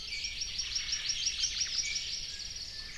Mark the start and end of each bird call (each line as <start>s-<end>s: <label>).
0.0s-2.2s: Hawaii Amakihi (Chlorodrepanis virens)
0.6s-1.8s: Omao (Myadestes obscurus)
2.0s-3.0s: Apapane (Himatione sanguinea)